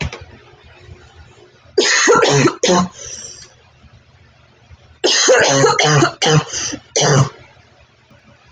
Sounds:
Cough